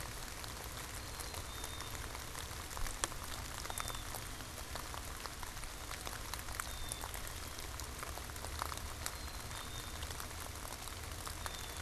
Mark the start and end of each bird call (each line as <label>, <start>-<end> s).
Black-capped Chickadee (Poecile atricapillus), 0.8-11.8 s